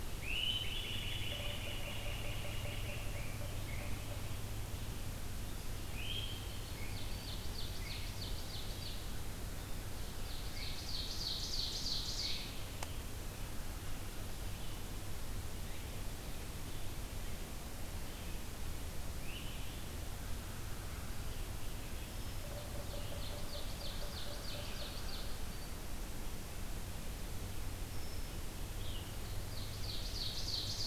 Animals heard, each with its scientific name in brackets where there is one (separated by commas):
Ovenbird (Seiurus aurocapilla), Great Crested Flycatcher (Myiarchus crinitus), Yellow-bellied Sapsucker (Sphyrapicus varius), Black-throated Green Warbler (Setophaga virens)